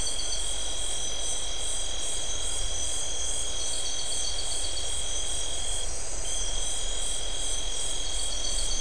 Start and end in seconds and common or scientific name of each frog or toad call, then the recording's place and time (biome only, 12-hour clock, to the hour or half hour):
none
Atlantic Forest, 9:30pm